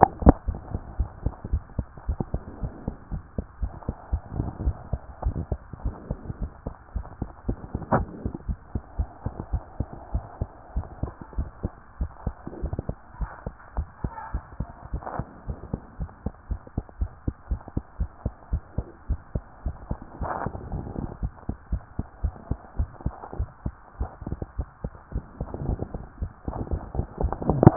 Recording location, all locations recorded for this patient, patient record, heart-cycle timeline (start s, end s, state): pulmonary valve (PV)
aortic valve (AV)+pulmonary valve (PV)+tricuspid valve (TV)+mitral valve (MV)
#Age: Child
#Sex: Female
#Height: 114.0 cm
#Weight: 26.4 kg
#Pregnancy status: False
#Murmur: Absent
#Murmur locations: nan
#Most audible location: nan
#Systolic murmur timing: nan
#Systolic murmur shape: nan
#Systolic murmur grading: nan
#Systolic murmur pitch: nan
#Systolic murmur quality: nan
#Diastolic murmur timing: nan
#Diastolic murmur shape: nan
#Diastolic murmur grading: nan
#Diastolic murmur pitch: nan
#Diastolic murmur quality: nan
#Outcome: Normal
#Campaign: 2014 screening campaign
0.00	0.48	unannotated
0.48	0.58	S1
0.58	0.72	systole
0.72	0.80	S2
0.80	0.98	diastole
0.98	1.10	S1
1.10	1.24	systole
1.24	1.34	S2
1.34	1.52	diastole
1.52	1.62	S1
1.62	1.76	systole
1.76	1.86	S2
1.86	2.08	diastole
2.08	2.18	S1
2.18	2.32	systole
2.32	2.42	S2
2.42	2.62	diastole
2.62	2.72	S1
2.72	2.86	systole
2.86	2.96	S2
2.96	3.12	diastole
3.12	3.22	S1
3.22	3.36	systole
3.36	3.46	S2
3.46	3.60	diastole
3.60	3.72	S1
3.72	3.86	systole
3.86	3.96	S2
3.96	4.12	diastole
4.12	4.22	S1
4.22	4.36	systole
4.36	4.46	S2
4.46	4.62	diastole
4.62	4.76	S1
4.76	4.92	systole
4.92	5.00	S2
5.00	5.24	diastole
5.24	5.38	S1
5.38	5.50	systole
5.50	5.60	S2
5.60	5.84	diastole
5.84	5.96	S1
5.96	6.08	systole
6.08	6.18	S2
6.18	6.40	diastole
6.40	6.50	S1
6.50	6.66	systole
6.66	6.74	S2
6.74	6.94	diastole
6.94	7.06	S1
7.06	7.20	systole
7.20	7.30	S2
7.30	7.48	diastole
7.48	7.58	S1
7.58	7.74	systole
7.74	7.83	S2
7.83	7.98	diastole
7.98	8.07	S1
8.07	8.22	systole
8.22	8.32	S2
8.32	8.48	diastole
8.48	8.58	S1
8.58	8.74	systole
8.74	8.82	S2
8.82	8.98	diastole
8.98	9.08	S1
9.08	9.24	systole
9.24	9.34	S2
9.34	9.52	diastole
9.52	9.62	S1
9.62	9.78	systole
9.78	9.88	S2
9.88	10.12	diastole
10.12	10.24	S1
10.24	10.40	systole
10.40	10.48	S2
10.48	10.76	diastole
10.76	10.86	S1
10.86	11.02	systole
11.02	11.12	S2
11.12	11.36	diastole
11.36	11.48	S1
11.48	11.62	systole
11.62	11.72	S2
11.72	12.00	diastole
12.00	12.10	S1
12.10	12.26	systole
12.26	12.34	S2
12.34	12.62	diastole
12.62	12.74	S1
12.74	12.88	systole
12.88	12.96	S2
12.96	13.20	diastole
13.20	13.30	S1
13.30	13.46	systole
13.46	13.54	S2
13.54	13.76	diastole
13.76	13.88	S1
13.88	14.02	systole
14.02	14.12	S2
14.12	14.32	diastole
14.32	14.44	S1
14.44	14.58	systole
14.58	14.68	S2
14.68	14.92	diastole
14.92	15.02	S1
15.02	15.18	systole
15.18	15.26	S2
15.26	15.48	diastole
15.48	15.58	S1
15.58	15.72	systole
15.72	15.80	S2
15.80	15.98	diastole
15.98	16.10	S1
16.10	16.24	systole
16.24	16.34	S2
16.34	16.50	diastole
16.50	16.60	S1
16.60	16.76	systole
16.76	16.84	S2
16.84	17.00	diastole
17.00	17.10	S1
17.10	17.26	systole
17.26	17.34	S2
17.34	17.50	diastole
17.50	17.60	S1
17.60	17.74	systole
17.74	17.84	S2
17.84	18.00	diastole
18.00	18.10	S1
18.10	18.24	systole
18.24	18.34	S2
18.34	18.52	diastole
18.52	18.62	S1
18.62	18.76	systole
18.76	18.86	S2
18.86	19.08	diastole
19.08	19.20	S1
19.20	19.34	systole
19.34	19.42	S2
19.42	19.64	diastole
19.64	19.76	S1
19.76	19.90	systole
19.90	20.00	S2
20.00	20.20	diastole
20.20	20.30	S1
20.30	20.44	systole
20.44	20.52	S2
20.52	20.72	diastole
20.72	20.84	S1
20.84	20.98	systole
20.98	21.08	S2
21.08	21.22	diastole
21.22	21.32	S1
21.32	21.48	systole
21.48	21.56	S2
21.56	21.72	diastole
21.72	21.82	S1
21.82	21.98	systole
21.98	22.06	S2
22.06	22.22	diastole
22.22	22.34	S1
22.34	22.50	systole
22.50	22.58	S2
22.58	22.78	diastole
22.78	22.90	S1
22.90	23.04	systole
23.04	23.14	S2
23.14	23.38	diastole
23.38	23.48	S1
23.48	23.64	systole
23.64	23.74	S2
23.74	24.00	diastole
24.00	24.10	S1
24.10	24.28	systole
24.28	24.38	S2
24.38	24.58	diastole
24.58	24.68	S1
24.68	24.84	systole
24.84	24.92	S2
24.92	25.14	diastole
25.14	25.24	S1
25.24	25.38	systole
25.38	25.48	S2
25.48	25.67	diastole
25.67	25.78	S1
25.78	25.94	systole
25.94	26.04	S2
26.04	26.20	diastole
26.20	26.30	S1
26.30	26.46	systole
26.46	26.56	S2
26.56	26.72	diastole
26.72	26.82	S1
26.82	26.96	systole
26.96	27.06	S2
27.06	27.22	diastole
27.22	27.76	unannotated